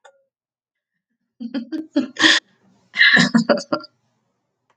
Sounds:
Laughter